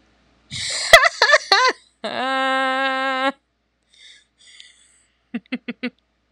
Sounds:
Laughter